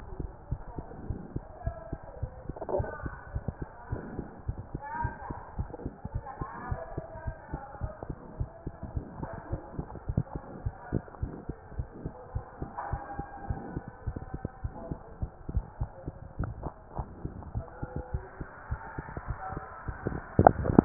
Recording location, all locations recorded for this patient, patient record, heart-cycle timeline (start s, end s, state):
mitral valve (MV)
aortic valve (AV)+pulmonary valve (PV)+tricuspid valve (TV)+mitral valve (MV)
#Age: Child
#Sex: Male
#Height: 114.0 cm
#Weight: 46.3 kg
#Pregnancy status: False
#Murmur: Absent
#Murmur locations: nan
#Most audible location: nan
#Systolic murmur timing: nan
#Systolic murmur shape: nan
#Systolic murmur grading: nan
#Systolic murmur pitch: nan
#Systolic murmur quality: nan
#Diastolic murmur timing: nan
#Diastolic murmur shape: nan
#Diastolic murmur grading: nan
#Diastolic murmur pitch: nan
#Diastolic murmur quality: nan
#Outcome: Normal
#Campaign: 2015 screening campaign
0.00	0.32	unannotated
0.32	0.50	diastole
0.50	0.60	S1
0.60	0.74	systole
0.74	0.86	S2
0.86	1.06	diastole
1.06	1.20	S1
1.20	1.34	systole
1.34	1.44	S2
1.44	1.62	diastole
1.62	1.76	S1
1.76	1.88	systole
1.88	1.98	S2
1.98	2.18	diastole
2.18	2.32	S1
2.32	2.44	systole
2.44	2.54	S2
2.54	2.72	diastole
2.72	2.88	S1
2.88	3.02	systole
3.02	3.16	S2
3.16	3.32	diastole
3.32	3.44	S1
3.44	3.58	systole
3.58	3.68	S2
3.68	3.90	diastole
3.90	4.04	S1
4.04	4.14	systole
4.14	4.26	S2
4.26	4.44	diastole
4.44	4.56	S1
4.56	4.70	systole
4.70	4.82	S2
4.82	5.02	diastole
5.02	5.14	S1
5.14	5.30	systole
5.30	5.38	S2
5.38	5.56	diastole
5.56	5.72	S1
5.72	5.82	systole
5.82	5.96	S2
5.96	6.12	diastole
6.12	6.24	S1
6.24	6.39	systole
6.39	6.46	S2
6.46	6.68	diastole
6.68	6.82	S1
6.82	6.96	systole
6.96	7.04	S2
7.04	7.24	diastole
7.24	7.36	S1
7.36	7.51	systole
7.51	7.62	S2
7.62	7.81	diastole
7.81	7.94	S1
7.94	8.07	systole
8.07	8.16	S2
8.16	8.36	diastole
8.36	8.50	S1
8.50	8.65	systole
8.65	8.74	S2
8.74	8.92	diastole
8.92	9.04	S1
9.04	9.18	systole
9.18	9.30	S2
9.30	9.50	diastole
9.50	9.64	S1
9.64	9.76	systole
9.76	9.88	S2
9.88	10.06	diastole
10.06	10.17	S1
10.17	10.34	systole
10.34	10.44	S2
10.44	10.64	diastole
10.64	10.74	S1
10.74	10.92	systole
10.92	11.02	S2
11.02	11.20	diastole
11.20	11.36	S1
11.36	11.47	systole
11.47	11.56	S2
11.56	11.76	diastole
11.76	11.90	S1
11.90	12.04	systole
12.04	12.14	S2
12.14	12.32	diastole
12.32	12.44	S1
12.44	12.58	systole
12.58	12.70	S2
12.70	12.90	diastole
12.90	13.04	S1
13.04	13.18	systole
13.18	13.26	S2
13.26	13.46	diastole
13.46	13.60	S1
13.60	13.74	systole
13.74	13.86	S2
13.86	14.06	diastole
14.06	14.16	S1
14.16	14.32	systole
14.32	14.42	S2
14.42	14.62	diastole
14.62	14.76	S1
14.76	14.90	systole
14.90	15.00	S2
15.00	15.20	diastole
15.20	15.34	S1
15.34	15.54	systole
15.54	15.64	S2
15.64	15.79	diastole
15.79	15.90	S1
15.90	16.06	systole
16.06	16.16	S2
16.16	16.38	diastole
16.38	16.52	S1
16.52	16.63	systole
16.63	16.76	S2
16.76	16.96	diastole
16.96	17.08	S1
17.08	17.22	systole
17.22	17.34	S2
17.34	17.54	diastole
17.54	17.68	S1
17.68	17.80	systole
17.80	17.92	S2
17.92	18.12	diastole
18.12	18.26	S1
18.26	18.39	systole
18.39	18.48	S2
18.48	18.70	diastole
18.70	18.84	S1
18.84	18.96	systole
18.96	19.08	S2
19.08	19.28	diastole
19.28	19.40	S1
19.40	19.52	systole
19.52	19.66	S2
19.66	19.74	diastole
19.74	20.85	unannotated